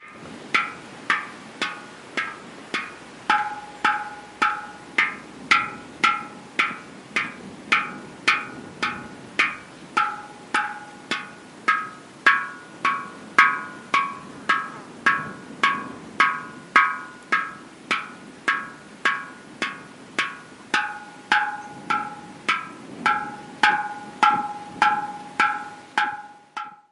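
Water drips steadily onto a metallic bowl. 0.0 - 26.9
Wind blows quietly in the distance. 0.0 - 26.9

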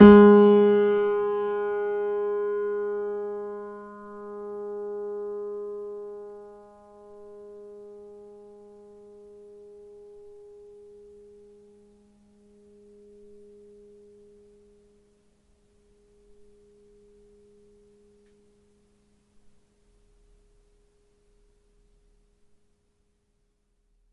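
A piano key is struck loudly, and the sound gradually fades away. 0.0 - 11.8

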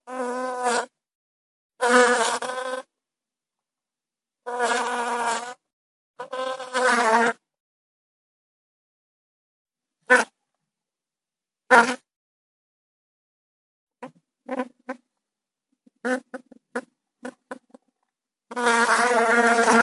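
A bee buzzes slowly, then rapidly. 0.0 - 0.9
A bee buzzes loudly. 1.8 - 2.9
A bee is buzzing. 4.4 - 5.6
A bee buzzing grows louder. 6.2 - 7.4
A bee buzzing quickly. 10.1 - 10.3
A bee buzzing quickly. 11.7 - 12.1
A bee buzzes in three short, quiet bursts. 14.0 - 15.0
A bee buzzes in short, quiet bursts. 15.9 - 17.9
A bee is buzzing loudly. 18.5 - 19.8

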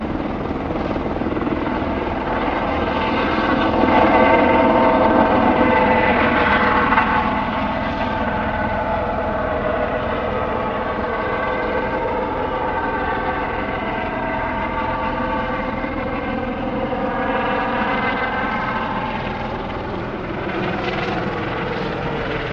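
Muffled, loud sound of helicopter rotor blades taking off and gradually fading into the distance. 0.0 - 22.5

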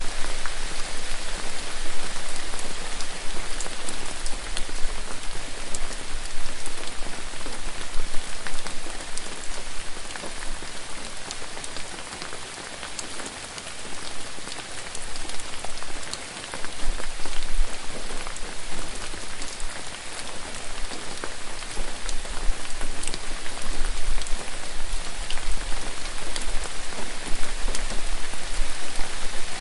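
Calm rain falling. 0.0 - 29.6

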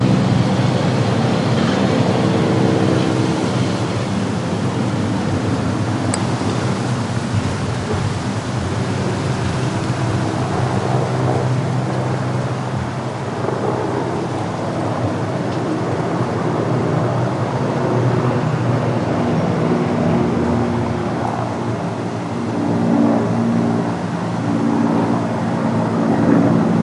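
A helicopter flies by, gradually decreasing in volume. 0.1 - 26.8
A muffled wind blows. 0.1 - 26.7

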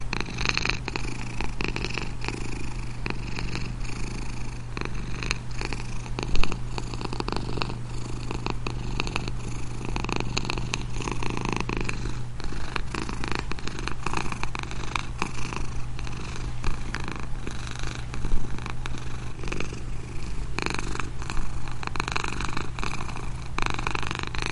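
A heater vibrates in the background. 0.0 - 24.5
A domestic cat is purring calmly. 0.0 - 24.5

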